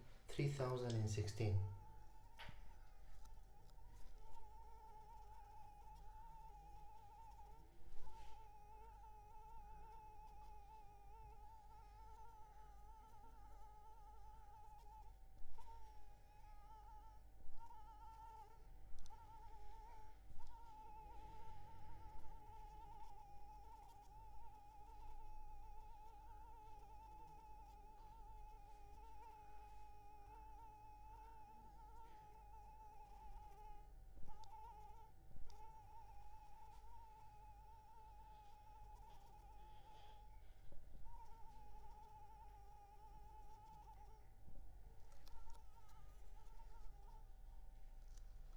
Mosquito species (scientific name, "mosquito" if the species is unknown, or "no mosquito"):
Anopheles arabiensis